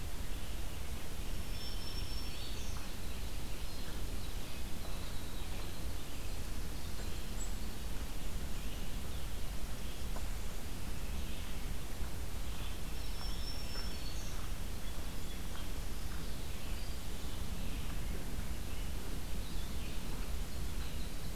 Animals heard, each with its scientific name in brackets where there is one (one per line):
Red-eyed Vireo (Vireo olivaceus)
Rose-breasted Grosbeak (Pheucticus ludovicianus)
Winter Wren (Troglodytes hiemalis)
Chimney Swift (Chaetura pelagica)
Black-throated Green Warbler (Setophaga virens)